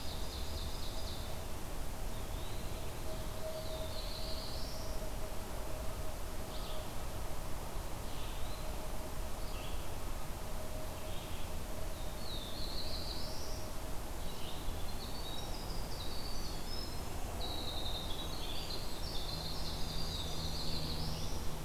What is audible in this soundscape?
Ovenbird, Eastern Wood-Pewee, Black-throated Blue Warbler, Red-eyed Vireo, Winter Wren